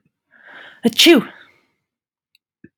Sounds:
Sneeze